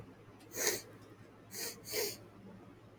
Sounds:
Sniff